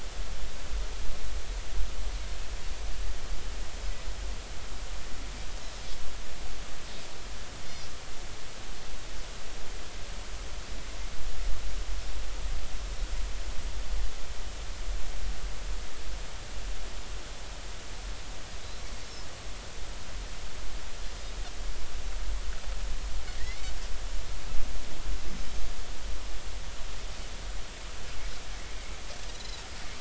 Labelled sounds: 23.4	23.7	Pacific white-sided dolphin, 1.8 to 2.3 kHz
29.3	29.6	Pacific white-sided dolphin, 3.7 to 4.2 kHz

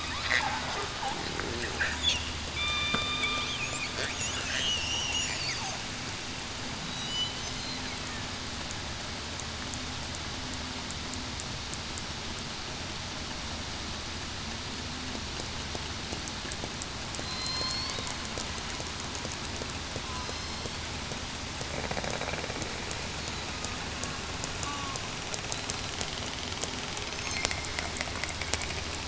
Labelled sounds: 2.5	3.3	killer whale, southern resident, 2.2 to 3.7 kHz
4.7	5.1	killer whale, southern resident, 2.7 to 3.1 kHz
6.8	7.2	killer whale, southern resident, 3.8 to 4.0 kHz
17.2	17.9	killer whale, southern resident, 4.1 to 4.6 kHz
20.1	20.7	killer whale, southern resident, 4.1 to 5.4 kHz
24.6	25.0	killer whale, southern resident, 1.0 to 1.2 kHz

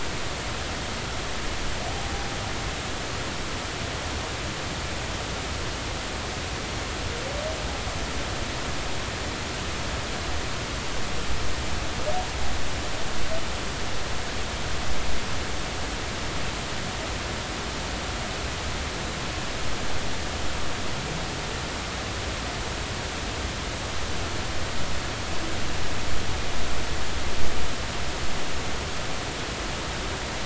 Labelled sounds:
1.9	2.2	humpback whale, 0.80 to 0.83 kHz

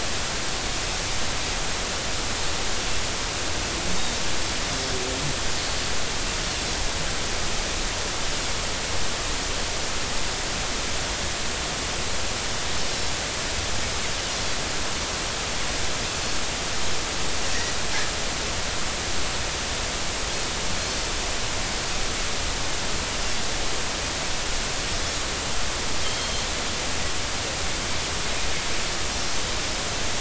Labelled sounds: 3.9	4.2	Pacific white-sided dolphin, 3.6 to 3.8 kHz
26.0	26.4	Pacific white-sided dolphin, 3.0 to 3.3 kHz

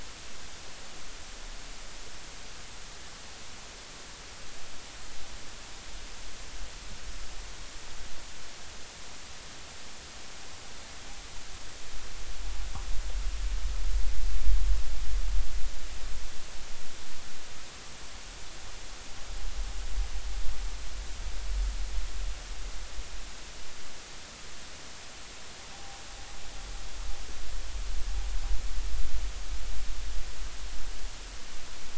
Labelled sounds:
25.7	26.0	noise likely from the mooring, 0.80 to 0.93 kHz

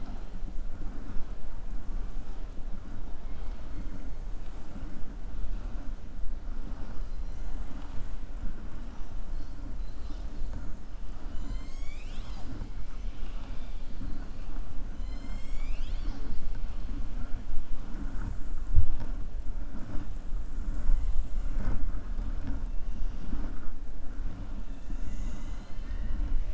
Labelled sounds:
13.1	13.8	killer whale, southern resident, 0.82 to 4.0 kHz

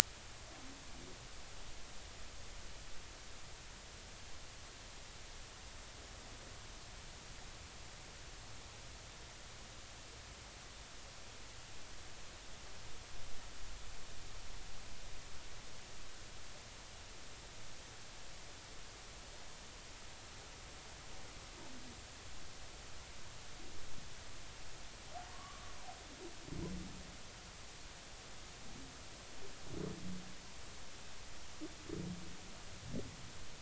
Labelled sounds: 25.3	25.7	humpback whale, 1.1 to 1.3 kHz

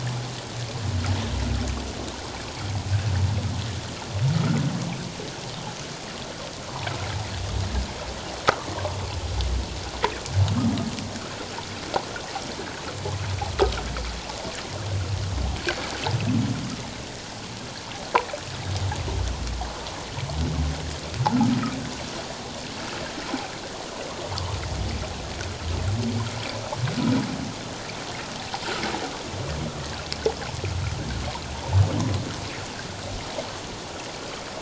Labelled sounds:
4.4	4.6	humpback whale, 1.2 to 1.5 kHz
10.4	10.8	humpback whale, 1.0 to 1.4 kHz

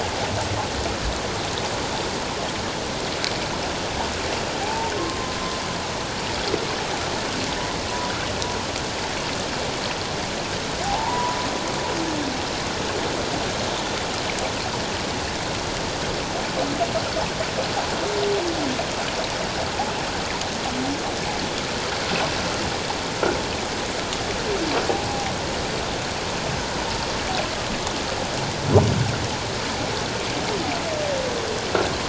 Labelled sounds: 4.6	4.9	humpback whale, 0.78 to 0.97 kHz
10.8	11.4	humpback whale, 0.78 to 1.0 kHz

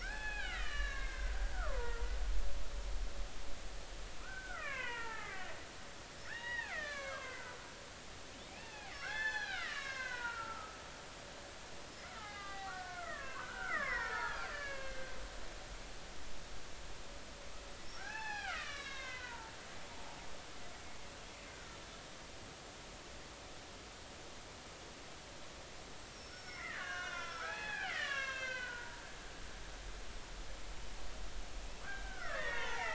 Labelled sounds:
0.0	2.0	killer whale, Bigg's (transient), 0.80 to 5.0 kHz
4.2	5.5	killer whale, Bigg's (transient), 0.80 to 3.1 kHz
6.3	7.6	killer whale, Bigg's (transient), 0.80 to 4.2 kHz
8.5	10.9	killer whale, Bigg's (transient), 0.80 to 6.7 kHz
12.1	15.1	killer whale, Bigg's (transient), 0.80 to 5.4 kHz
18.0	20.2	killer whale, Bigg's (transient), 0.80 to 5.9 kHz
26.1	29.0	killer whale, Bigg's (transient), 0.80 to 7.1 kHz
31.8	32.9	killer whale, Bigg's (transient), 0.80 to 3.7 kHz

